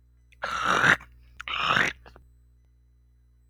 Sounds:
Throat clearing